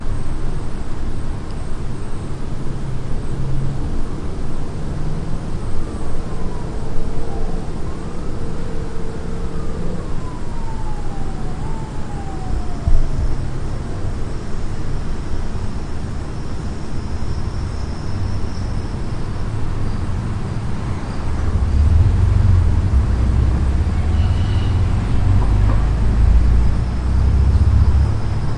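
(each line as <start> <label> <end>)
0.0 A constant low hum with faint crackling or static. 28.6
5.7 A siren is heard in the far distance. 15.0
12.8 Dull, hollow, slightly muffled thumps created by tapping on a microphone. 13.5
19.3 An engine ramps up with a deep rumble. 28.6
24.1 A metallic screech repeats quickly. 24.9
25.3 Metal being knocked on in quick succession. 25.8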